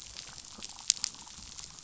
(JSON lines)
{"label": "biophony, damselfish", "recorder": "SoundTrap 500"}